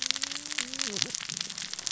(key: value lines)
label: biophony, cascading saw
recorder: SoundTrap 600 or HydroMoth